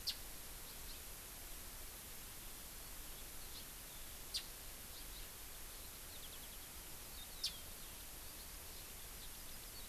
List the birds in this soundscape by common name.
Japanese Bush Warbler, Hawaii Amakihi, Warbling White-eye